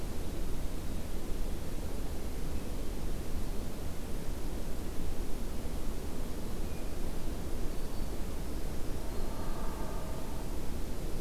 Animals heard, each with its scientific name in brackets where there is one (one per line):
Black-throated Green Warbler (Setophaga virens)
Blue Jay (Cyanocitta cristata)